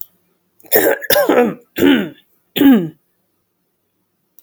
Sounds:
Throat clearing